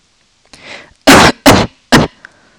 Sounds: Cough